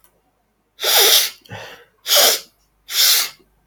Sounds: Sniff